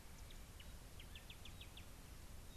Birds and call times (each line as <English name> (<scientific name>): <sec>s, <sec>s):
Hunter's Sunbird (Chalcomitra hunteri): 1.3s
Pygmy Batis (Batis perkeo): 2.5s